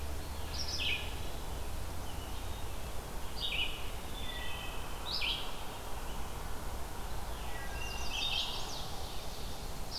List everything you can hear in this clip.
Red-eyed Vireo, Wood Thrush, Chestnut-sided Warbler, Ovenbird